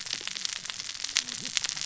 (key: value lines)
label: biophony, cascading saw
recorder: SoundTrap 600 or HydroMoth